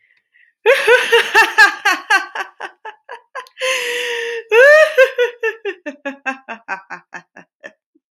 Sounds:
Laughter